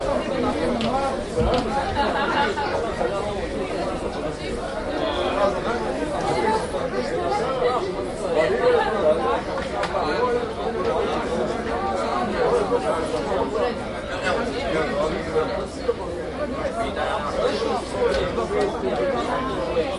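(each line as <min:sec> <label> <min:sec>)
0:00.0 People chatting nearby. 0:19.9
0:01.9 An adult woman laughs nearby. 0:02.5
0:05.0 An adult male sighs in the distance. 0:05.5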